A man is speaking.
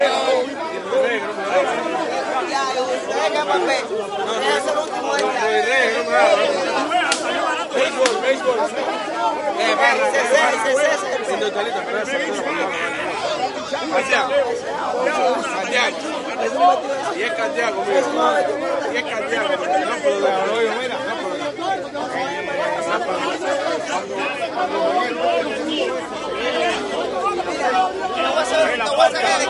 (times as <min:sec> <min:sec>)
0:07.7 0:08.9